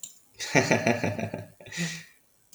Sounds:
Laughter